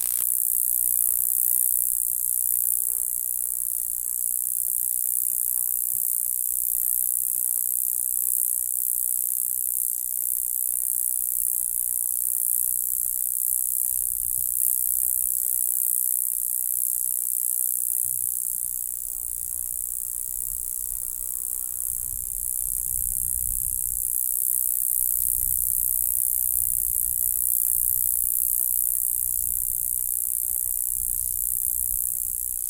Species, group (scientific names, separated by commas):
Gampsocleis glabra, Orthoptera